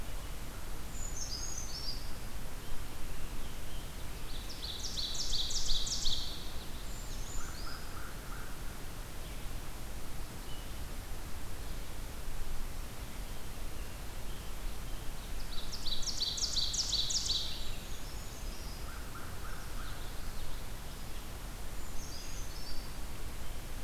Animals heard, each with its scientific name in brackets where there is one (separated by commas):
Common Yellowthroat (Geothlypis trichas), Ovenbird (Seiurus aurocapilla), American Crow (Corvus brachyrhynchos), Brown Creeper (Certhia americana)